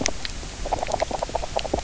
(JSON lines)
{"label": "biophony, knock croak", "recorder": "SoundTrap 300"}